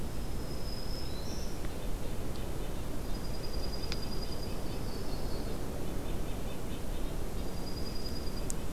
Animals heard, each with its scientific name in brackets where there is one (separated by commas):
Red-breasted Nuthatch (Sitta canadensis), Black-throated Green Warbler (Setophaga virens), Yellow-rumped Warbler (Setophaga coronata), Dark-eyed Junco (Junco hyemalis)